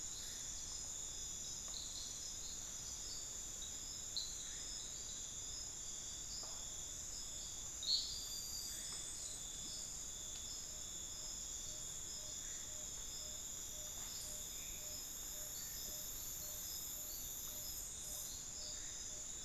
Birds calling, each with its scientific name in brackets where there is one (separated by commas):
Tawny-bellied Screech-Owl (Megascops watsonii)